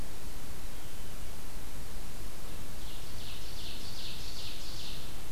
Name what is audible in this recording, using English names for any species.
Ovenbird